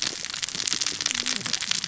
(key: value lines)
label: biophony, cascading saw
recorder: SoundTrap 600 or HydroMoth